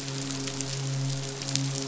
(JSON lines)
{"label": "biophony, midshipman", "recorder": "SoundTrap 500"}